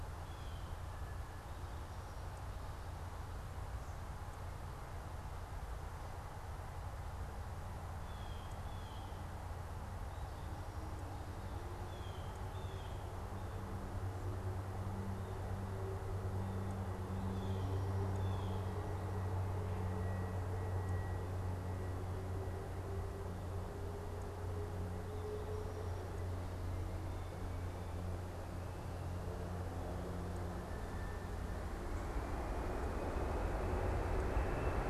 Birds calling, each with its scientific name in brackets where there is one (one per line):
Blue Jay (Cyanocitta cristata)